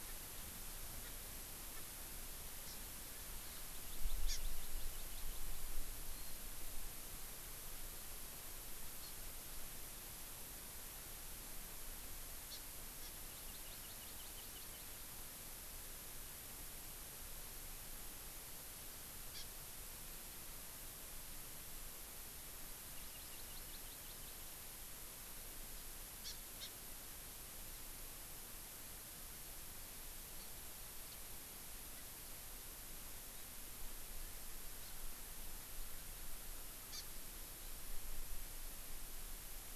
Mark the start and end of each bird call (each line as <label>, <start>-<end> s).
Erckel's Francolin (Pternistis erckelii), 1.0-1.1 s
Erckel's Francolin (Pternistis erckelii), 1.7-1.8 s
Hawaii Amakihi (Chlorodrepanis virens), 2.6-2.8 s
Hawaii Amakihi (Chlorodrepanis virens), 3.6-5.6 s
Warbling White-eye (Zosterops japonicus), 6.1-6.4 s
Hawaii Amakihi (Chlorodrepanis virens), 9.0-9.1 s
Hawaii Amakihi (Chlorodrepanis virens), 12.5-12.6 s
Hawaii Amakihi (Chlorodrepanis virens), 13.0-15.1 s
Hawaii Amakihi (Chlorodrepanis virens), 19.3-19.4 s
Hawaii Amakihi (Chlorodrepanis virens), 22.9-24.7 s
Hawaii Amakihi (Chlorodrepanis virens), 26.2-26.3 s
Hawaii Amakihi (Chlorodrepanis virens), 26.6-26.7 s
Hawaii Amakihi (Chlorodrepanis virens), 36.9-37.0 s